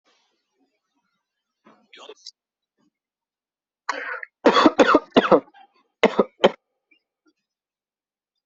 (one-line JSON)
{"expert_labels": [{"quality": "ok", "cough_type": "dry", "dyspnea": false, "wheezing": false, "stridor": false, "choking": false, "congestion": false, "nothing": true, "diagnosis": "COVID-19", "severity": "mild"}]}